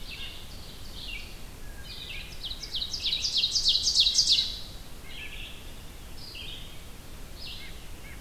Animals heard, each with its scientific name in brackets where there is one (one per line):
Ovenbird (Seiurus aurocapilla)
White-breasted Nuthatch (Sitta carolinensis)
Red-eyed Vireo (Vireo olivaceus)
Wood Thrush (Hylocichla mustelina)